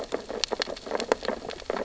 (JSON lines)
{"label": "biophony, sea urchins (Echinidae)", "recorder": "SoundTrap 600 or HydroMoth"}